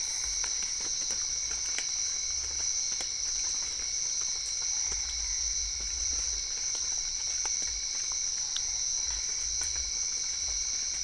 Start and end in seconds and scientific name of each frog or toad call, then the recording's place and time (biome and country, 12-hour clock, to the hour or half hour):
0.0	5.7	Physalaemus cuvieri
Cerrado, Brazil, 7:30pm